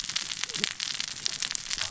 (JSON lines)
{"label": "biophony, cascading saw", "recorder": "SoundTrap 600 or HydroMoth"}